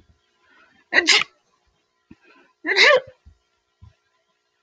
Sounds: Sneeze